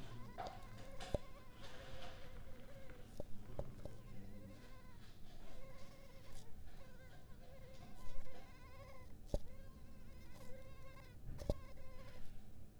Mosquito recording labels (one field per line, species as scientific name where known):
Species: Culex pipiens complex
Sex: female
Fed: unfed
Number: one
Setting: cup